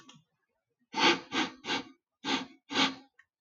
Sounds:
Sniff